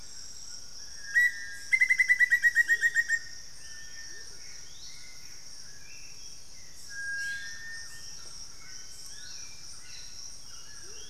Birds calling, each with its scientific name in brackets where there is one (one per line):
unidentified bird
Amazonian Motmot (Momotus momota)
Hauxwell's Thrush (Turdus hauxwelli)
White-throated Toucan (Ramphastos tucanus)
Black-faced Antthrush (Formicarius analis)